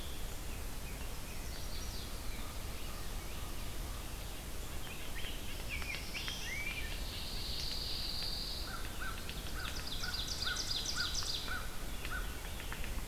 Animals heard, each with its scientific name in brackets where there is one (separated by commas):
Black-throated Blue Warbler (Setophaga caerulescens), Ovenbird (Seiurus aurocapilla), American Crow (Corvus brachyrhynchos), Common Raven (Corvus corax), Chestnut-sided Warbler (Setophaga pensylvanica), Veery (Catharus fuscescens), White-breasted Nuthatch (Sitta carolinensis), Pine Warbler (Setophaga pinus), Rose-breasted Grosbeak (Pheucticus ludovicianus)